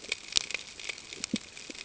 {"label": "ambient", "recorder": "HydroMoth"}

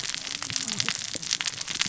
{"label": "biophony, cascading saw", "recorder": "SoundTrap 600 or HydroMoth"}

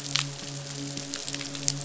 {"label": "biophony, midshipman", "recorder": "SoundTrap 500"}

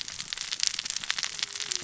{"label": "biophony, cascading saw", "recorder": "SoundTrap 600 or HydroMoth"}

